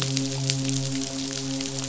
{"label": "biophony, midshipman", "recorder": "SoundTrap 500"}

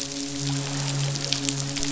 {"label": "biophony, midshipman", "recorder": "SoundTrap 500"}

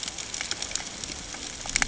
{"label": "ambient", "recorder": "HydroMoth"}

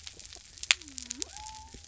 {"label": "biophony", "recorder": "SoundTrap 300"}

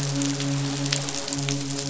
{"label": "biophony, midshipman", "recorder": "SoundTrap 500"}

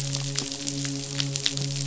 {"label": "biophony, midshipman", "recorder": "SoundTrap 500"}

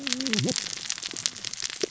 {"label": "biophony, cascading saw", "recorder": "SoundTrap 600 or HydroMoth"}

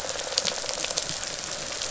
{"label": "biophony", "recorder": "SoundTrap 500"}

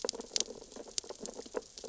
{"label": "biophony, sea urchins (Echinidae)", "recorder": "SoundTrap 600 or HydroMoth"}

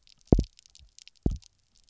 {"label": "biophony, double pulse", "recorder": "SoundTrap 300"}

